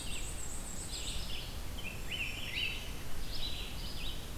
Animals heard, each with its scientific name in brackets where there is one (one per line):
Black-and-white Warbler (Mniotilta varia)
Red-eyed Vireo (Vireo olivaceus)
Black-throated Green Warbler (Setophaga virens)